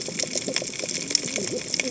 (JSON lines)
{"label": "biophony, cascading saw", "recorder": "HydroMoth"}